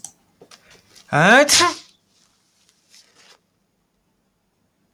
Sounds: Sneeze